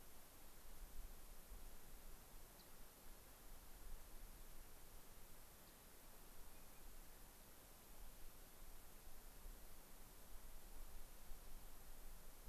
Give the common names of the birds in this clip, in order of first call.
Rock Wren